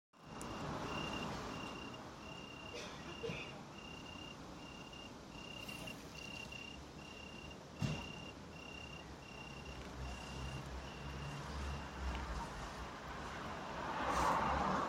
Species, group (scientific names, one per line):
Oecanthus pellucens
Orthoptera